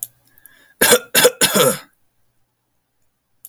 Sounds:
Cough